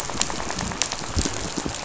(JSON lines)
{"label": "biophony, rattle", "recorder": "SoundTrap 500"}